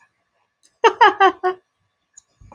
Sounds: Laughter